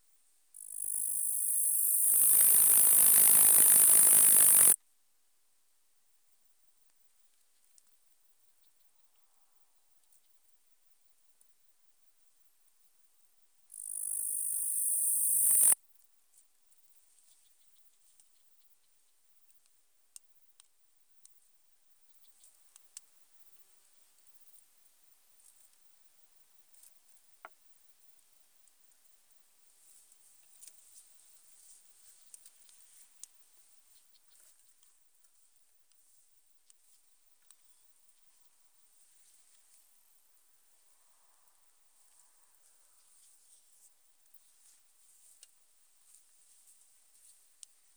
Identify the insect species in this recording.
Tettigonia caudata